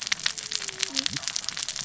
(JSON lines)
{"label": "biophony, cascading saw", "recorder": "SoundTrap 600 or HydroMoth"}